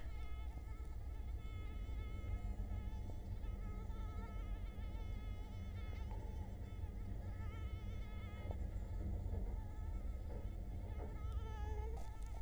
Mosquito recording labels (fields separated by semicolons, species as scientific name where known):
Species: Culex quinquefasciatus; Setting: cup